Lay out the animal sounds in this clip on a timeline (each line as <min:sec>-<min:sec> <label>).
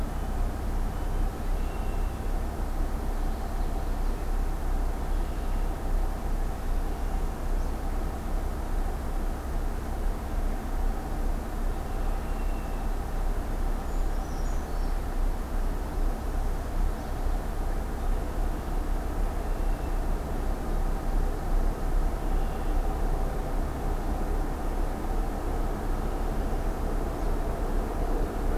0:01.5-0:02.1 Red-winged Blackbird (Agelaius phoeniceus)
0:02.9-0:04.2 Common Yellowthroat (Geothlypis trichas)
0:05.0-0:05.9 Red-winged Blackbird (Agelaius phoeniceus)
0:06.8-0:07.7 Northern Parula (Setophaga americana)
0:13.8-0:15.0 Brown Creeper (Certhia americana)
0:19.2-0:20.2 Red-winged Blackbird (Agelaius phoeniceus)
0:22.1-0:22.9 Red-winged Blackbird (Agelaius phoeniceus)